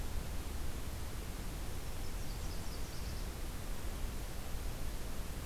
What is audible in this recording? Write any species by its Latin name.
Leiothlypis ruficapilla